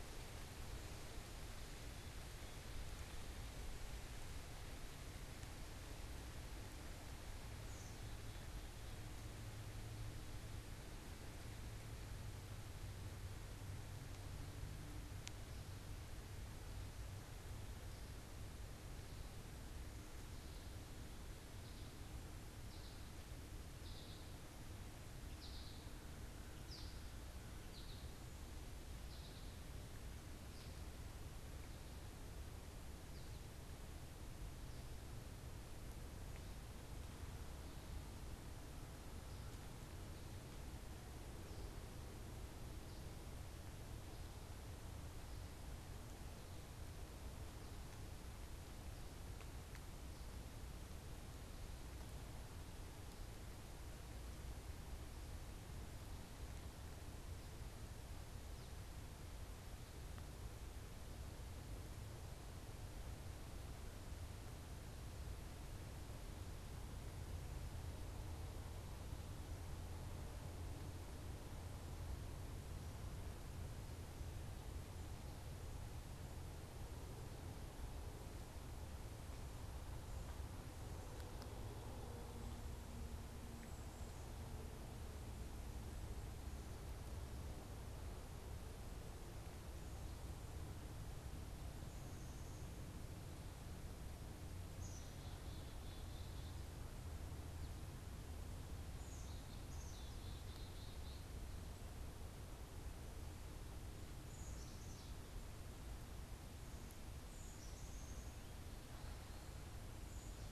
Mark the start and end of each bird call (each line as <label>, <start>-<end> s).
American Goldfinch (Spinus tristis), 23.0-29.6 s
Black-capped Chickadee (Poecile atricapillus), 94.7-96.7 s
Black-capped Chickadee (Poecile atricapillus), 99.0-110.5 s